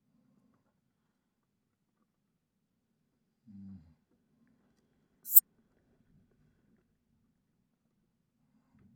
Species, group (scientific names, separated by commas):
Poecilimon affinis, Orthoptera